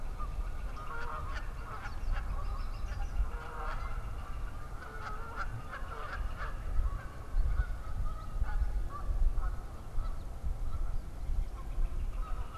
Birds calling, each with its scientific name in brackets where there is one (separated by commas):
Northern Flicker (Colaptes auratus), Canada Goose (Branta canadensis), unidentified bird